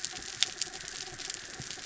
{"label": "anthrophony, mechanical", "recorder": "SoundTrap 300"}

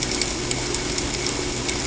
{"label": "ambient", "recorder": "HydroMoth"}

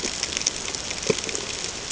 {"label": "ambient", "recorder": "HydroMoth"}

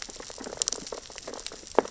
{"label": "biophony, sea urchins (Echinidae)", "recorder": "SoundTrap 600 or HydroMoth"}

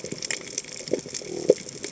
{"label": "biophony", "recorder": "HydroMoth"}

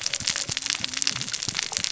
{"label": "biophony, cascading saw", "recorder": "SoundTrap 600 or HydroMoth"}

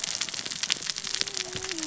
{"label": "biophony, cascading saw", "recorder": "SoundTrap 600 or HydroMoth"}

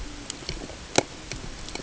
{"label": "ambient", "recorder": "HydroMoth"}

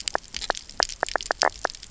{"label": "biophony, knock croak", "recorder": "SoundTrap 300"}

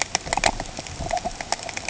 {"label": "ambient", "recorder": "HydroMoth"}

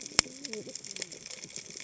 {"label": "biophony, cascading saw", "recorder": "HydroMoth"}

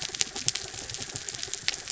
{"label": "anthrophony, mechanical", "recorder": "SoundTrap 300"}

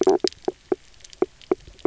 {"label": "biophony, knock croak", "recorder": "SoundTrap 300"}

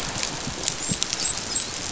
{"label": "biophony, dolphin", "recorder": "SoundTrap 500"}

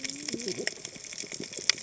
{"label": "biophony, cascading saw", "recorder": "HydroMoth"}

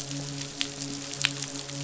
{"label": "biophony, midshipman", "recorder": "SoundTrap 500"}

